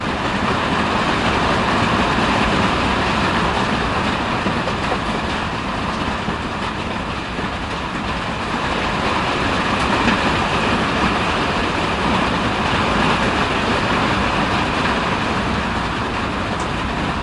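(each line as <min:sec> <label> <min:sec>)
0:00.0 Heavy rain falling with varying intensity. 0:17.2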